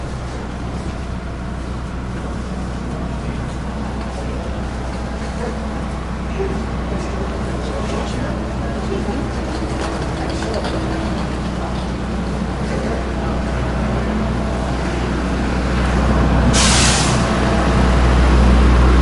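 Constant mid-pitched ambient noise with indistinct, muffled chatter and random commotion. 0:00.0 - 0:19.0
A smooth, continuous rumbling sound resembling a rotating machine gradually fades in and increases in volume. 0:12.9 - 0:19.0
A high-pitched, loud whooshing sound caused by the release of air pressure. 0:16.2 - 0:17.2

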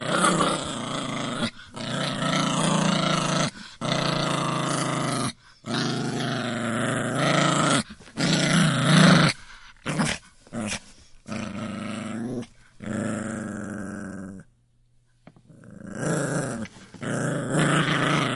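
A small Maltese dog growls repeatedly. 0:00.0 - 0:14.4
A small Maltese dog growls repeatedly. 0:15.4 - 0:18.4

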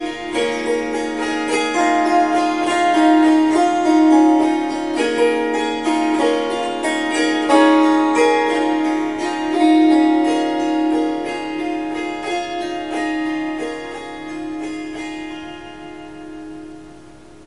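Rhythmic melodic strings playing ethnic music. 0:00.3 - 0:15.7

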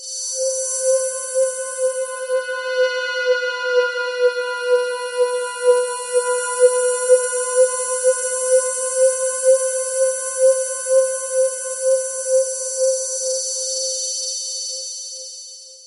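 Metallic drum and bass sound playing at 170 BPM in key C. 0:00.2 - 0:15.1

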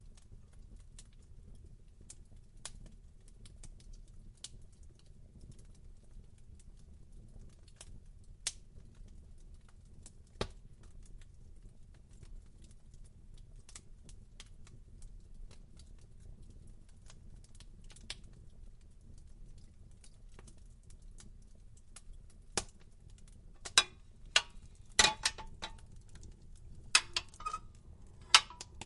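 Fire crackling softly in a fireplace. 0:02.0 - 0:05.2
Fire crackling softly and occasionally. 0:07.7 - 0:08.7
Fire crackling crisply. 0:10.2 - 0:10.7
Fire pops crisply. 0:10.2 - 0:10.7
Fire crackling softly. 0:13.3 - 0:14.6
Fire crackles crisply. 0:17.8 - 0:18.4
Fire crackling crisply. 0:20.4 - 0:22.8
A metallic thumping sound repeats rhythmically. 0:23.5 - 0:25.9
A metallic thumping sound repeats rhythmically. 0:26.8 - 0:28.9

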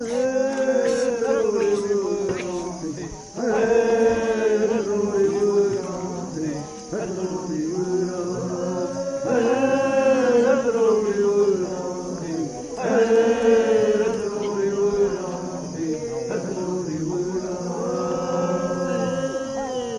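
Crickets can be heard. 0:00.0 - 0:19.9
People singing around a fire in nature. 0:00.0 - 0:19.9

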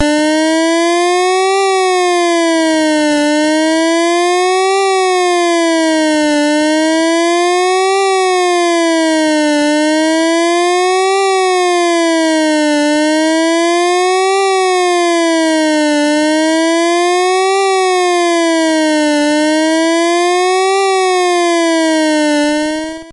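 A siren wails loudly in a pulsating manner. 0:00.0 - 0:23.1
A creaking sound. 0:02.8 - 0:03.5
A creaking sound. 0:09.7 - 0:10.8
A creaking sound. 0:15.6 - 0:16.9
A creaking sound. 0:19.0 - 0:20.0
A creaking sound. 0:22.2 - 0:23.0

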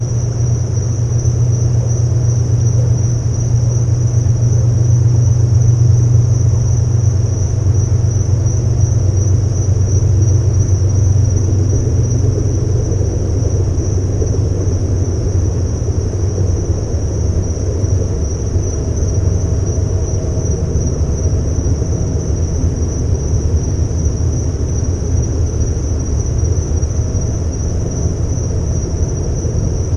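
A generator hums constantly. 0:00.0 - 0:30.0
Crickets chirping in a field at night. 0:00.0 - 0:30.0
A train passes by quietly in the distance. 0:10.4 - 0:30.0

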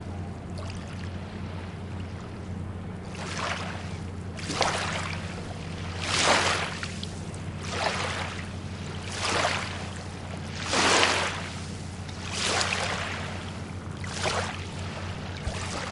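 Waves softly crashing on the beach, repeating. 0:00.0 - 0:15.9

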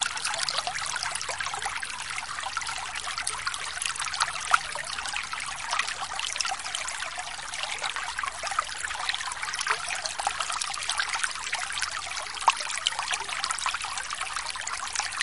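Water flowing down a stream, trickling and softly burbling. 0:00.0 - 0:15.2

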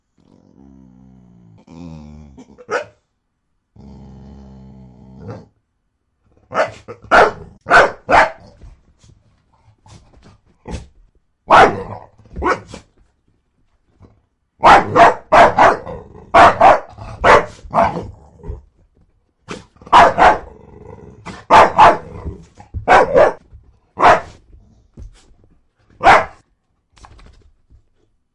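A dog is growling lowly and barking indoors. 0:00.0 - 0:05.5
A dog barks loudly multiple times indoors. 0:06.5 - 0:08.8
A dog woofs quietly indoors. 0:09.0 - 0:11.0
A dog barks loudly and sharply indoors. 0:11.5 - 0:12.9
A dog barks continuously, loudly, and sharply indoors. 0:14.1 - 0:18.7
A dog barks and growls repeatedly in a loud and sharp manner. 0:19.5 - 0:27.6

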